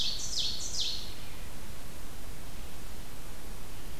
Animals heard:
Ovenbird (Seiurus aurocapilla)

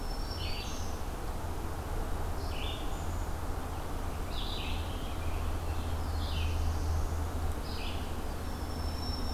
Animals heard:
American Robin (Turdus migratorius), Black-throated Blue Warbler (Setophaga caerulescens), Black-throated Green Warbler (Setophaga virens), Red-eyed Vireo (Vireo olivaceus)

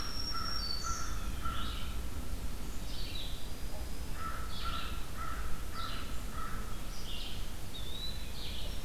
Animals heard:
Red-eyed Vireo (Vireo olivaceus), Eastern Wood-Pewee (Contopus virens), American Crow (Corvus brachyrhynchos), Black-throated Green Warbler (Setophaga virens)

